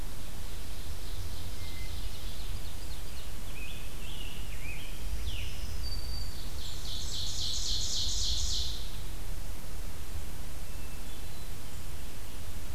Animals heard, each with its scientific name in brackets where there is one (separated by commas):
Black-throated Green Warbler (Setophaga virens), Ovenbird (Seiurus aurocapilla), Scarlet Tanager (Piranga olivacea), Blackburnian Warbler (Setophaga fusca), Hermit Thrush (Catharus guttatus)